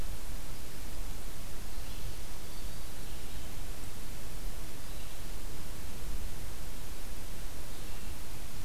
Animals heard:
forest ambience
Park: Marsh-Billings-Rockefeller National Historical Park